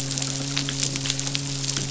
{"label": "biophony, midshipman", "recorder": "SoundTrap 500"}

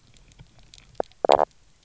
{"label": "biophony, knock croak", "recorder": "SoundTrap 300"}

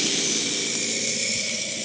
{"label": "anthrophony, boat engine", "recorder": "HydroMoth"}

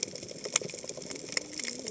{"label": "biophony, cascading saw", "recorder": "HydroMoth"}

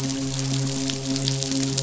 {"label": "biophony, midshipman", "recorder": "SoundTrap 500"}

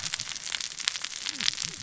{"label": "biophony, cascading saw", "recorder": "SoundTrap 600 or HydroMoth"}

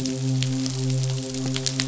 {"label": "biophony, midshipman", "recorder": "SoundTrap 500"}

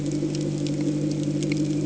{"label": "anthrophony, boat engine", "recorder": "HydroMoth"}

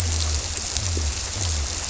{"label": "biophony", "recorder": "SoundTrap 300"}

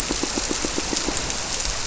{"label": "biophony, squirrelfish (Holocentrus)", "recorder": "SoundTrap 300"}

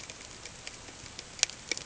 {"label": "ambient", "recorder": "HydroMoth"}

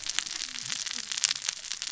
{"label": "biophony, cascading saw", "recorder": "SoundTrap 600 or HydroMoth"}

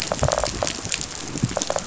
{"label": "biophony, rattle response", "recorder": "SoundTrap 500"}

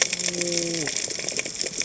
{"label": "biophony", "recorder": "HydroMoth"}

